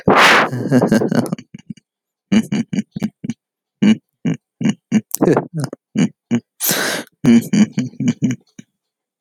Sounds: Laughter